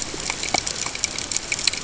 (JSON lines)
{"label": "ambient", "recorder": "HydroMoth"}